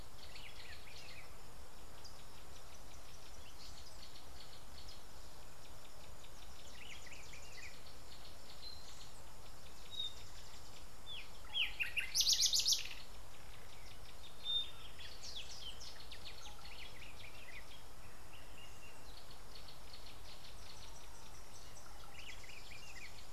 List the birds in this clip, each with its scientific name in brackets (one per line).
Gray-backed Camaroptera (Camaroptera brevicaudata)